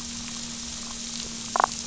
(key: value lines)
label: biophony, damselfish
recorder: SoundTrap 500

label: anthrophony, boat engine
recorder: SoundTrap 500